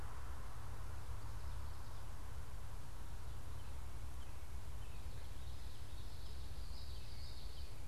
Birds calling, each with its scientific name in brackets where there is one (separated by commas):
Common Yellowthroat (Geothlypis trichas), unidentified bird